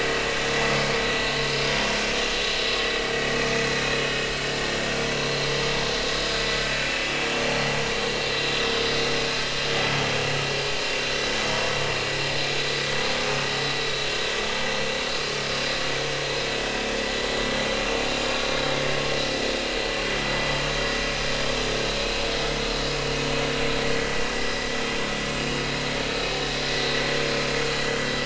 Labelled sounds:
5.0	5.3	vessel noise, 0.93 to 1.1 kHz
22.0	22.3	vessel noise, 2.5 to 2.6 kHz

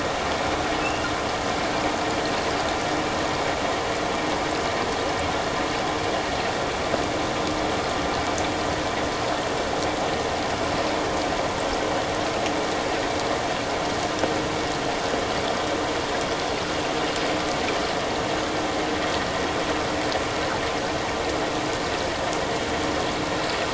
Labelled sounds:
0.8	1.1	killer whale, offshore, 2.6 to 2.9 kHz

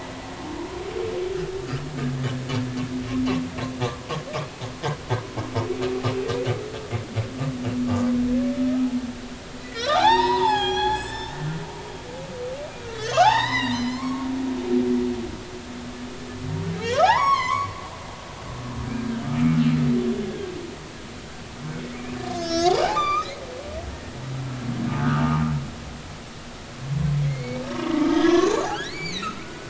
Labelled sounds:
3.8	4.1	humpback whale, 0.96 to 1.2 kHz
9.6	11.4	humpback whale, 0.80 to 8.0 kHz
13.0	14.3	humpback whale, 0.80 to 6.7 kHz
16.9	17.8	humpback whale, 0.80 to 6.9 kHz
18.8	19.3	humpback whale, 1.5 to 1.7 kHz
20.2	20.5	humpback whale, 1.6 to 1.7 kHz
22.3	24.2	humpback whale, 0.80 to 6.6 kHz
25.0	25.3	humpback whale, 1.2 to 1.7 kHz
27.2	29.6	humpback whale, 0.96 to 7.0 kHz

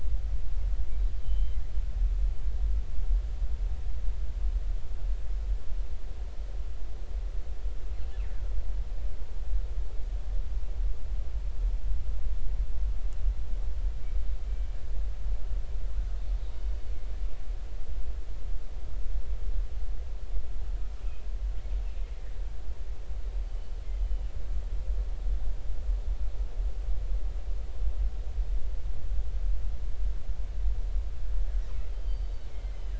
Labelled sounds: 1.1	1.6	killer whale, 2.9 to 3.2 kHz
21.0	21.3	killer whale, 2.4 to 2.8 kHz
23.5	24.3	killer whale, 2.8 to 3.2 kHz
31.9	32.9	killer whale, 2.0 to 4.7 kHz

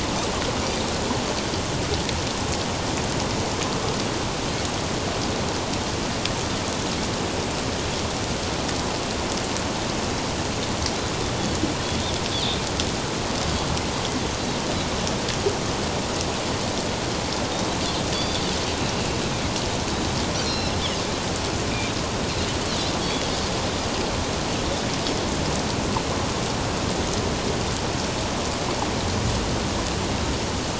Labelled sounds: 18.1	18.4	Pacific white-sided dolphin, 3.4 to 4.8 kHz
20.4	20.7	Pacific white-sided dolphin, 3.9 to 5.6 kHz
23.0	23.3	Pacific white-sided dolphin, 3.2 to 3.5 kHz

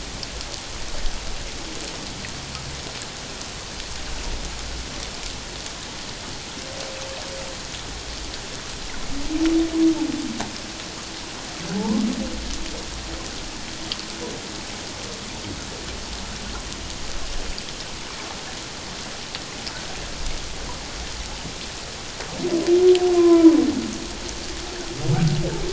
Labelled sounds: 11.7	12.0	humpback whale, 0.81 to 1.1 kHz
23.1	23.5	humpback whale, 0.91 to 1.1 kHz

